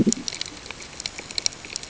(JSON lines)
{"label": "ambient", "recorder": "HydroMoth"}